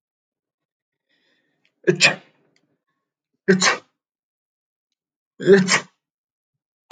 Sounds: Sneeze